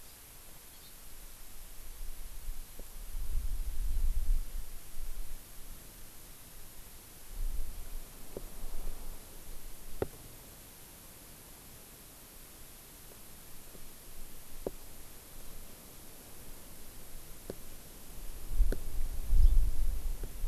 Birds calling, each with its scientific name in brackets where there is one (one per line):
Hawaii Amakihi (Chlorodrepanis virens)